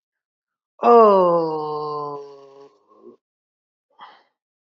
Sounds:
Sigh